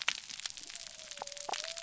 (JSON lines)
{"label": "biophony", "recorder": "SoundTrap 300"}